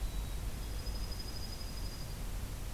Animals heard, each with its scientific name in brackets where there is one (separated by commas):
Black-capped Chickadee (Poecile atricapillus), Dark-eyed Junco (Junco hyemalis)